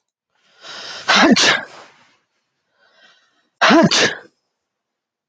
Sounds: Sneeze